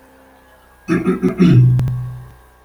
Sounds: Throat clearing